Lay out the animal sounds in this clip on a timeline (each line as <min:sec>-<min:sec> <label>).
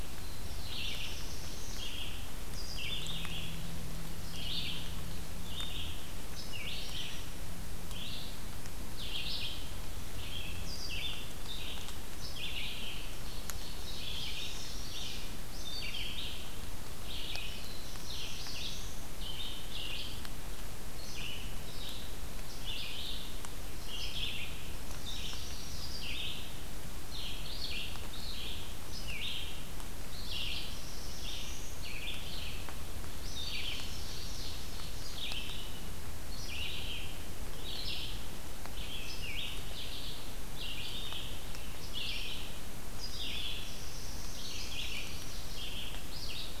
0:00.0-0:02.1 Black-throated Blue Warbler (Setophaga caerulescens)
0:00.0-0:34.0 Red-eyed Vireo (Vireo olivaceus)
0:13.0-0:14.9 Ovenbird (Seiurus aurocapilla)
0:14.3-0:15.4 Chestnut-sided Warbler (Setophaga pensylvanica)
0:17.2-0:19.4 Black-throated Blue Warbler (Setophaga caerulescens)
0:24.6-0:26.0 Chestnut-sided Warbler (Setophaga pensylvanica)
0:30.1-0:31.9 Black-throated Blue Warbler (Setophaga caerulescens)
0:33.6-0:35.2 Ovenbird (Seiurus aurocapilla)
0:35.1-0:46.6 Red-eyed Vireo (Vireo olivaceus)
0:43.2-0:45.3 Black-throated Blue Warbler (Setophaga caerulescens)